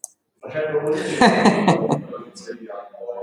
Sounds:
Laughter